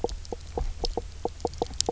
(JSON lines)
{"label": "biophony, knock croak", "recorder": "SoundTrap 300"}